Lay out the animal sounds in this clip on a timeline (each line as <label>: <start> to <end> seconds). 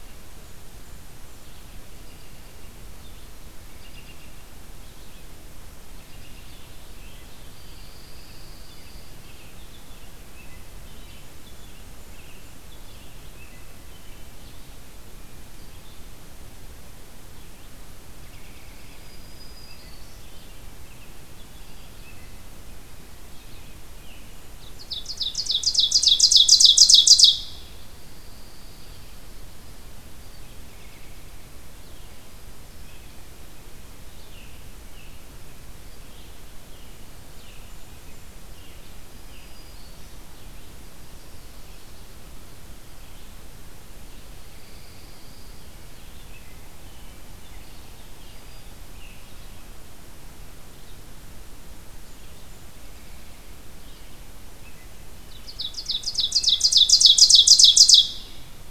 Red-eyed Vireo (Vireo olivaceus): 0.0 to 47.9 seconds
American Robin (Turdus migratorius): 1.9 to 2.8 seconds
American Robin (Turdus migratorius): 3.6 to 4.4 seconds
American Robin (Turdus migratorius): 5.8 to 6.8 seconds
Pine Warbler (Setophaga pinus): 7.5 to 9.1 seconds
American Robin (Turdus migratorius): 8.7 to 14.9 seconds
Blackburnian Warbler (Setophaga fusca): 11.0 to 12.7 seconds
American Robin (Turdus migratorius): 18.1 to 19.2 seconds
Black-throated Green Warbler (Setophaga virens): 18.8 to 20.5 seconds
American Robin (Turdus migratorius): 19.8 to 22.5 seconds
Ovenbird (Seiurus aurocapilla): 24.7 to 27.5 seconds
Pine Warbler (Setophaga pinus): 28.0 to 29.2 seconds
American Robin (Turdus migratorius): 30.5 to 31.4 seconds
Blackburnian Warbler (Setophaga fusca): 36.8 to 38.4 seconds
Black-throated Green Warbler (Setophaga virens): 38.8 to 40.3 seconds
Yellow-rumped Warbler (Setophaga coronata): 40.5 to 42.2 seconds
Pine Warbler (Setophaga pinus): 44.4 to 45.7 seconds
American Robin (Turdus migratorius): 45.8 to 49.1 seconds
Red-eyed Vireo (Vireo olivaceus): 49.1 to 55.5 seconds
Blackburnian Warbler (Setophaga fusca): 51.7 to 53.2 seconds
Ovenbird (Seiurus aurocapilla): 55.2 to 58.3 seconds